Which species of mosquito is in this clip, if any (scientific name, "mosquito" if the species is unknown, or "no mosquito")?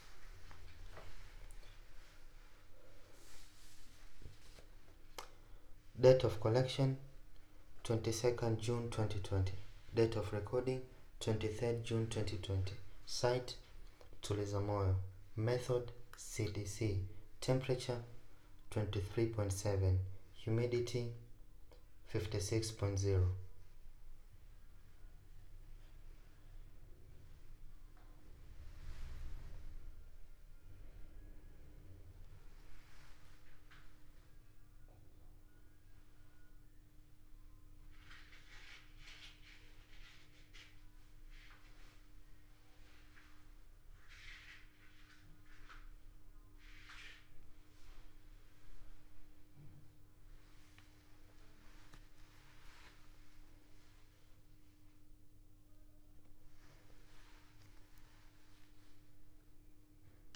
no mosquito